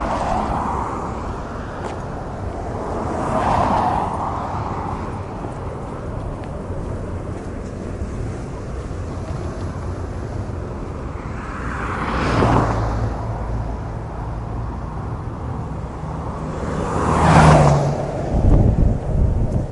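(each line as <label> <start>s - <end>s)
A car approaches, peaks in volume, and then disappears into the distance on a mostly silent street. 0.0s - 19.7s
An empty urban or suburban street at night with a calm and slightly eerie atmosphere. 0.0s - 19.7s
Low and distant ambient sound with faint echoes and brief rushing sounds from passing cars that fade away. 0.0s - 19.7s
Occasional cars pass by on a quiet, deserted street. 0.0s - 19.7s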